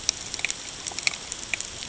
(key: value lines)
label: ambient
recorder: HydroMoth